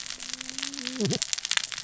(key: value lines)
label: biophony, cascading saw
recorder: SoundTrap 600 or HydroMoth